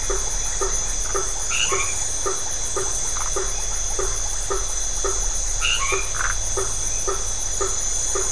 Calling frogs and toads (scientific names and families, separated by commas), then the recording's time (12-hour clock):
Boana faber (Hylidae), Phyllomedusa distincta (Hylidae), Boana albomarginata (Hylidae)
9:30pm